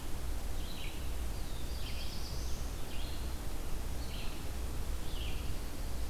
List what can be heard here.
Red-eyed Vireo, Black-throated Blue Warbler